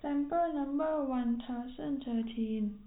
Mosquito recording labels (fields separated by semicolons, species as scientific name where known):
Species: no mosquito; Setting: cup